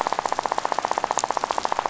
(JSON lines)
{"label": "biophony, rattle", "recorder": "SoundTrap 500"}